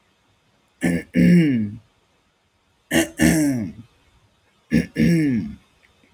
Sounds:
Throat clearing